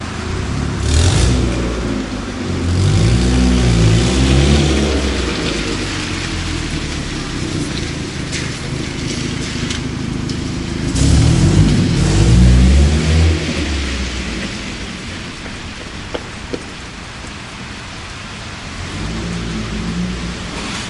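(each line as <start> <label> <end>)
0.8 An engine revving. 6.7
7.3 Something moving on wet terrain. 10.6
10.8 An engine revving. 15.7
18.9 An engine revving. 20.9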